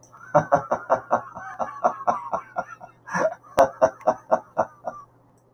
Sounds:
Laughter